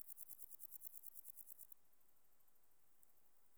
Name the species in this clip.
Chorthippus binotatus